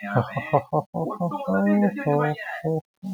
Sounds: Laughter